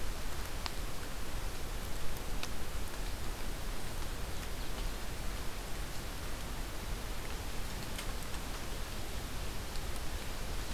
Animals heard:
Ovenbird (Seiurus aurocapilla)

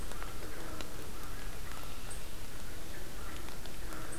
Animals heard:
American Crow (Corvus brachyrhynchos)
Red-winged Blackbird (Agelaius phoeniceus)

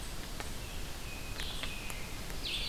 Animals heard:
American Robin (Turdus migratorius)
Blue-headed Vireo (Vireo solitarius)

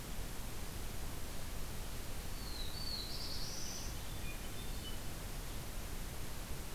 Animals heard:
Black-throated Blue Warbler (Setophaga caerulescens)
Hermit Thrush (Catharus guttatus)

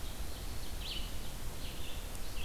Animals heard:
Ovenbird (Seiurus aurocapilla)
Red-eyed Vireo (Vireo olivaceus)

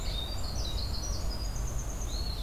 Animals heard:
Winter Wren (Troglodytes hiemalis)
Red Squirrel (Tamiasciurus hudsonicus)

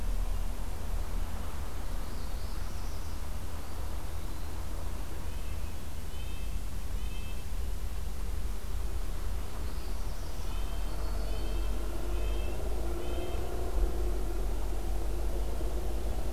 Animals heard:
Red-breasted Nuthatch (Sitta canadensis)
Yellow-rumped Warbler (Setophaga coronata)
Eastern Wood-Pewee (Contopus virens)
Northern Parula (Setophaga americana)

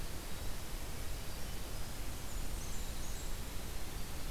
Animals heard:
Blackburnian Warbler (Setophaga fusca)

